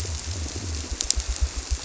{"label": "biophony", "recorder": "SoundTrap 300"}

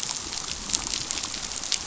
{"label": "biophony, damselfish", "recorder": "SoundTrap 500"}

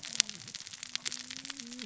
{"label": "biophony, cascading saw", "recorder": "SoundTrap 600 or HydroMoth"}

